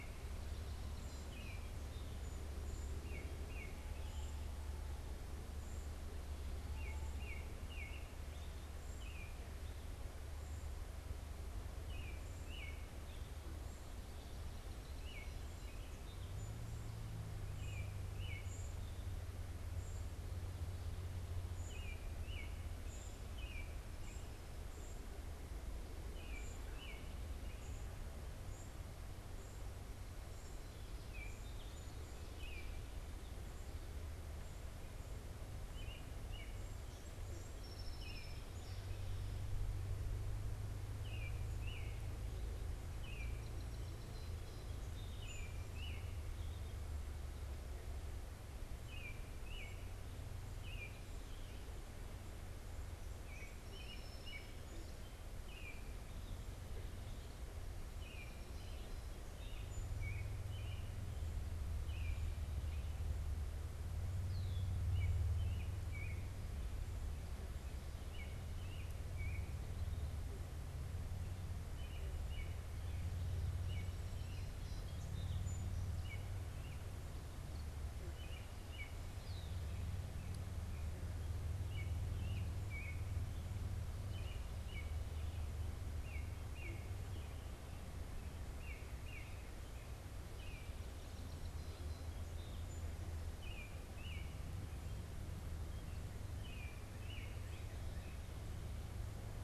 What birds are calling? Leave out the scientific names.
unidentified bird, American Robin, Song Sparrow, Red-winged Blackbird